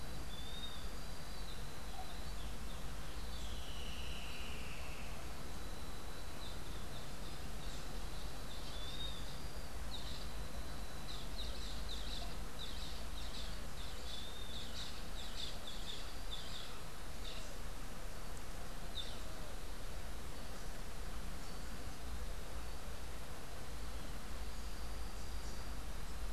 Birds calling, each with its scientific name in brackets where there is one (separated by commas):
Streak-headed Woodcreeper (Lepidocolaptes souleyetii), Boat-billed Flycatcher (Megarynchus pitangua), Western Wood-Pewee (Contopus sordidulus)